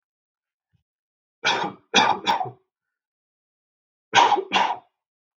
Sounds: Cough